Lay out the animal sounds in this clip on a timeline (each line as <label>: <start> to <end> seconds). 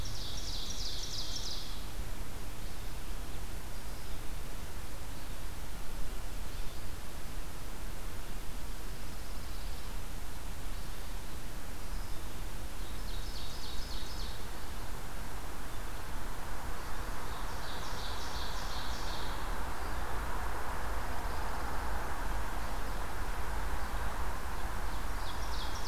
Ovenbird (Seiurus aurocapilla): 0.0 to 1.9 seconds
Red-eyed Vireo (Vireo olivaceus): 0.0 to 25.9 seconds
Pine Warbler (Setophaga pinus): 8.8 to 9.9 seconds
Ovenbird (Seiurus aurocapilla): 12.5 to 14.7 seconds
Ovenbird (Seiurus aurocapilla): 17.0 to 19.3 seconds
Pine Warbler (Setophaga pinus): 20.8 to 22.0 seconds
Ovenbird (Seiurus aurocapilla): 24.5 to 25.9 seconds